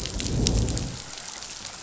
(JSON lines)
{"label": "biophony, growl", "recorder": "SoundTrap 500"}